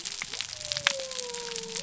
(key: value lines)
label: biophony
recorder: SoundTrap 300